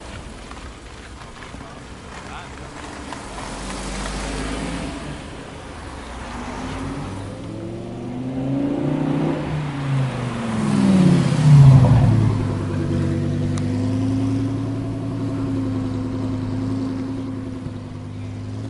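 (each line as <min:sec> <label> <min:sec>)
0:00.0 Footsteps of a person walking. 0:03.0
0:01.6 People are talking in the background. 0:03.0
0:03.1 A car is driving in the distance. 0:07.1
0:07.1 A car is accelerating. 0:09.6
0:09.6 Car slowing down. 0:12.9
0:12.9 A car is driving away, fading into the distance. 0:18.7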